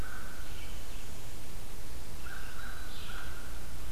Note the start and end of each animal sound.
0.0s-0.7s: American Crow (Corvus brachyrhynchos)
0.0s-3.3s: Red-eyed Vireo (Vireo olivaceus)
1.9s-3.9s: American Crow (Corvus brachyrhynchos)

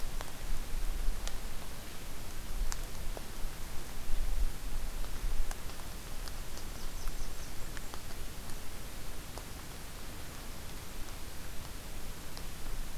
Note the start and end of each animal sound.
6.3s-7.9s: Blackburnian Warbler (Setophaga fusca)

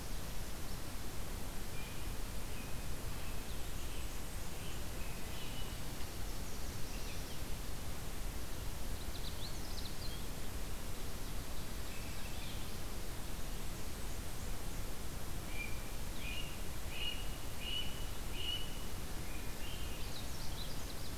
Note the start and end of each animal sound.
1.6s-5.7s: Blue Jay (Cyanocitta cristata)
3.2s-4.9s: Blackburnian Warbler (Setophaga fusca)
6.1s-7.6s: Nashville Warbler (Leiothlypis ruficapilla)
8.7s-10.3s: Canada Warbler (Cardellina canadensis)
11.6s-12.7s: Swainson's Thrush (Catharus ustulatus)
13.5s-14.9s: Blackburnian Warbler (Setophaga fusca)
15.4s-18.8s: Blue Jay (Cyanocitta cristata)
18.9s-20.1s: Swainson's Thrush (Catharus ustulatus)
19.8s-21.2s: Canada Warbler (Cardellina canadensis)

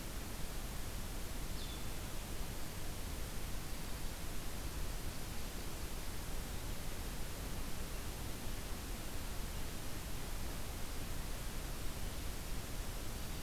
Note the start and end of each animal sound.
1.4s-2.0s: Blue-headed Vireo (Vireo solitarius)

